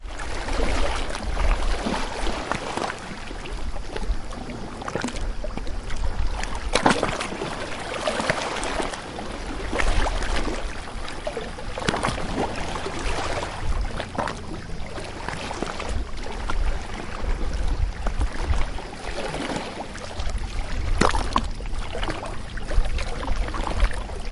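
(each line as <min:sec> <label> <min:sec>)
0:00.0 Water waves gently washing onto the shore. 0:24.3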